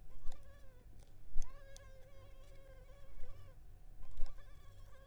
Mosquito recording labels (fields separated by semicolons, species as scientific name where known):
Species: Culex pipiens complex; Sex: female; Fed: unfed; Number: one; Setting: cup